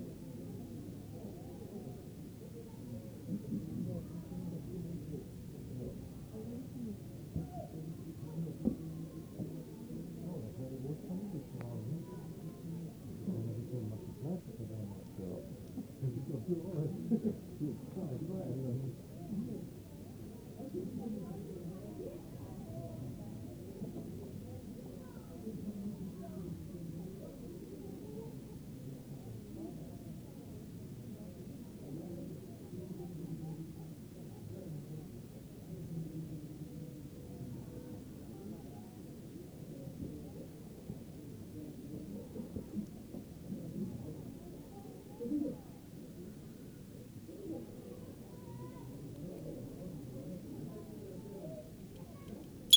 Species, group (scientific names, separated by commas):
Eugryllodes pipiens, Orthoptera